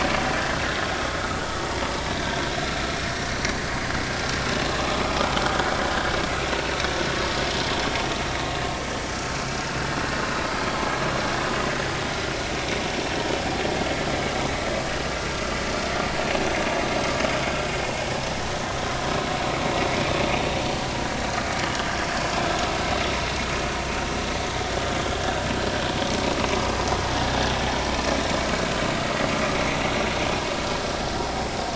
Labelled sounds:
4.9	5.1	vessel noise, 1.2 to 1.3 kHz
22.0	22.3	vessel noise, 4.4 to 4.6 kHz

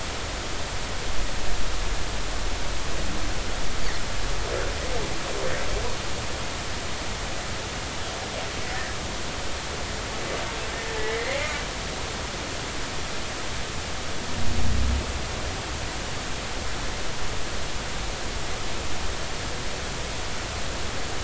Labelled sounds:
11.0	11.5	humpback whale, 1.9 to 2.5 kHz

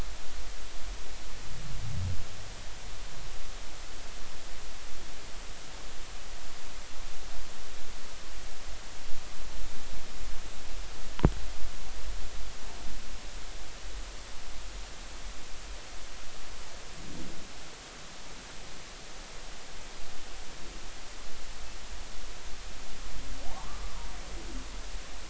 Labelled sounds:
23.5	24.1	humpback whale, 0.80 to 1.3 kHz

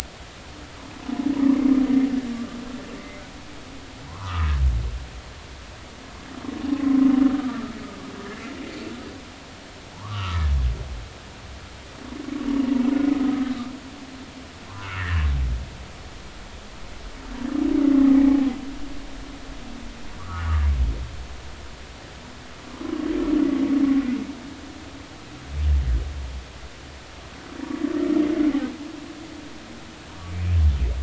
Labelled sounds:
3.0	4.5	humpback whale, 0.86 to 2.3 kHz
6.8	7.7	humpback whale, 0.99 to 1.4 kHz
9.9	10.5	humpback whale, 0.80 to 1.4 kHz
14.7	15.2	humpback whale, 0.93 to 2.0 kHz
20.2	20.5	humpback whale, 1.1 to 1.5 kHz

